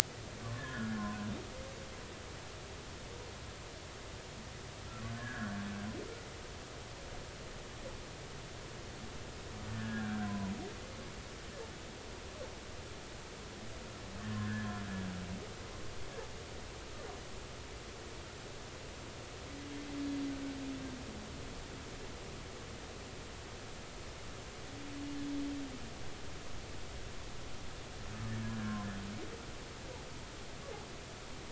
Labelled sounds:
0.5	1.0	humpback whale, 1.3 to 1.9 kHz
5.2	5.6	humpback whale, 1.3 to 1.8 kHz
9.7	10.5	humpback whale, 0.93 to 1.8 kHz
14.4	14.8	humpback whale, 1.4 to 1.8 kHz
28.6	28.9	humpback whale, 0.96 to 1.1 kHz

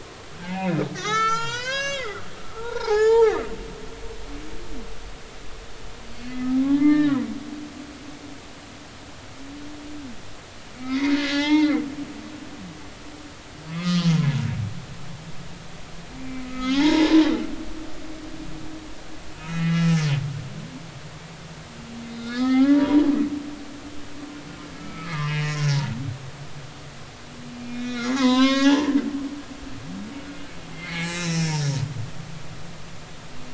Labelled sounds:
0.4	2.2	humpback whale, 0.83 to 7.9 kHz
2.5	3.4	humpback whale, 0.80 to 7.4 kHz
3.9	4.4	humpback whale, 1.2 to 3.3 kHz
6.6	7.1	humpback whale, 0.80 to 2.1 kHz
10.8	11.8	humpback whale, 0.80 to 5.3 kHz
13.7	14.1	humpback whale, 1.2 to 3.2 kHz
16.2	17.2	humpback whale, 0.80 to 5.5 kHz
19.4	20.1	humpback whale, 1.2 to 2.9 kHz
22.1	23.0	humpback whale, 0.80 to 5.2 kHz
24.8	25.8	humpback whale, 0.90 to 5.6 kHz
27.7	28.9	humpback whale, 0.80 to 7.2 kHz
30.7	31.8	humpback whale, 0.80 to 5.6 kHz

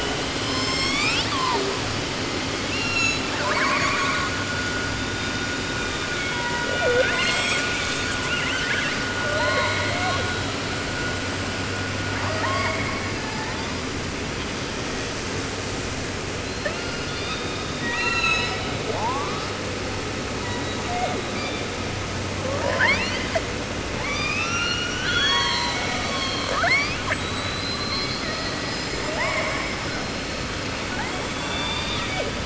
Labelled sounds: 0.0	1.8	killer whale, southern resident, J pod, call S01, 0.30 to 8.0 kHz
2.7	3.4	killer whale, 0.30 to 8.0 kHz
3.3	4.5	killer whale, southern resident, call S10, 0.30 to 8.0 kHz
6.0	8.1	killer whale, 0.29 to 8.0 kHz
8.2	9.1	killer whale, southern resident, call S10, 0.30 to 8.0 kHz
9.2	10.4	killer whale, 0.25 to 4.5 kHz
12.1	13.8	killer whale, 0.30 to 8.0 kHz
16.4	18.8	killer whale, southern resident, J pod, call S42 and call S01, 0.30 to 8.0 kHz
18.9	19.6	killer whale, 0.20 to 6.2 kHz
20.4	21.9	killer whale, 0.24 to 4.9 kHz
22.4	23.6	killer whale, 0.30 to 8.0 kHz
23.9	30.5	killer whale, 0.38 to 8.0 kHz
30.8	32.4	killer whale, southern resident, 0.30 to 8.0 kHz

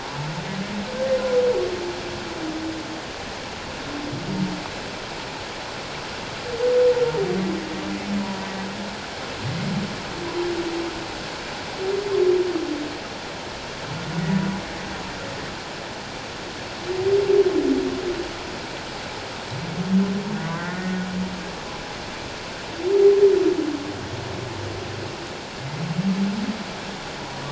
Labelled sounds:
20.3	21.1	humpback whale, 1.3 to 1.6 kHz

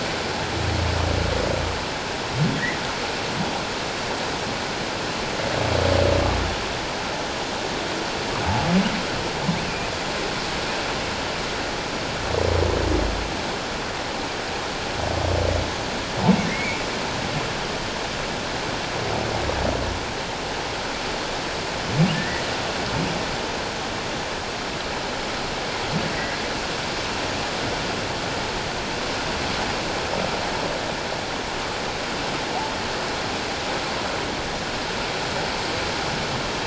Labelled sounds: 16.5	16.8	humpback whale, 1.8 to 2.4 kHz
22.1	22.5	humpback whale, 1.7 to 2.0 kHz

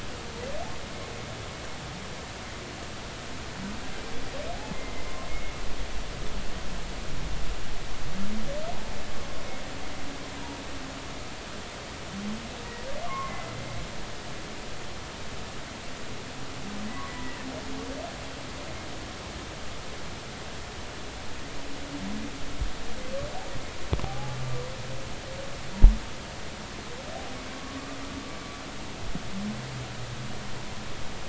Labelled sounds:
4.7	5.5	humpback whale, 2.0 to 2.2 kHz
13.0	13.5	humpback whale, 0.96 to 2.2 kHz
17.1	17.4	humpback whale, 1.9 to 2.0 kHz
24.0	24.4	humpback whale, 0.80 to 0.90 kHz

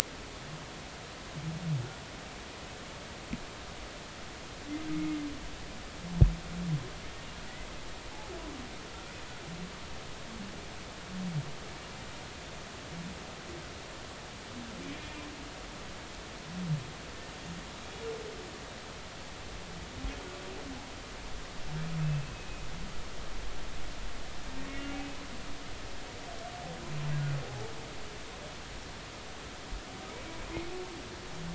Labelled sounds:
22.3	22.7	humpback whale, 2.5 to 2.6 kHz
24.7	25.1	humpback whale, 2.7 to 2.9 kHz

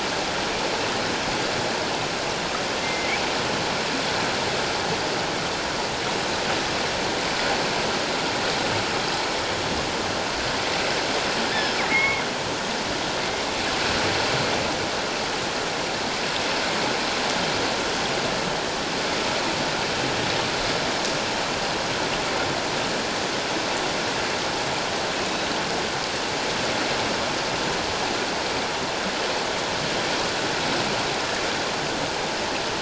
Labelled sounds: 2.8	3.2	killer whale, northern resident, 2.0 to 2.4 kHz
11.5	12.2	killer whale, northern resident, 1.0 to 2.2 kHz

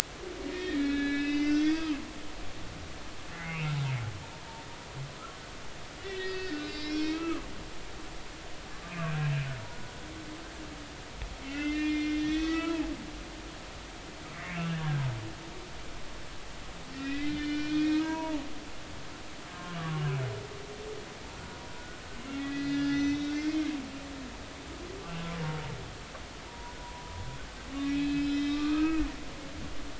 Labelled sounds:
0.5	2.0	humpback whale, 1.1 to 6.1 kHz
3.3	3.6	humpback whale, 2.0 to 2.3 kHz
6.0	7.4	humpback whale, 1.0 to 5.6 kHz
8.9	9.3	humpback whale, 1.5 to 2.6 kHz
11.5	12.9	humpback whale, 0.80 to 5.2 kHz
14.3	15.0	humpback whale, 1.4 to 2.9 kHz
16.9	18.5	humpback whale, 0.80 to 4.2 kHz
19.5	20.0	humpback whale, 1.0 to 1.2 kHz
22.2	23.7	humpback whale, 1.3 to 6.1 kHz
26.5	27.1	humpback whale, 0.90 to 1.1 kHz
27.7	29.2	humpback whale, 1.1 to 5.3 kHz

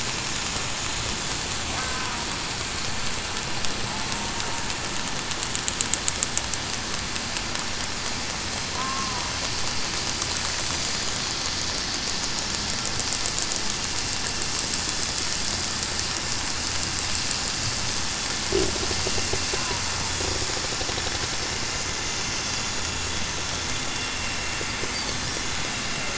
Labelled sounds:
8.7	9.2	killer whale, southern resident, 0.94 to 1.1 kHz

